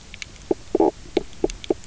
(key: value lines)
label: biophony, knock croak
recorder: SoundTrap 300